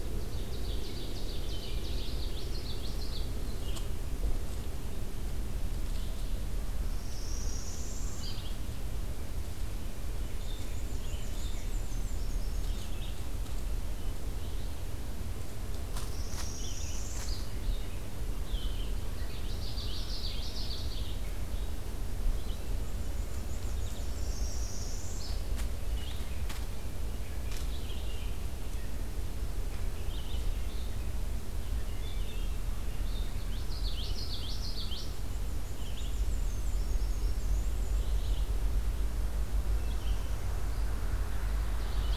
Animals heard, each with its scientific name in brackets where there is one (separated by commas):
Red-eyed Vireo (Vireo olivaceus), Common Yellowthroat (Geothlypis trichas), Hermit Thrush (Catharus guttatus), Black-and-white Warbler (Mniotilta varia), Northern Parula (Setophaga americana), Ovenbird (Seiurus aurocapilla)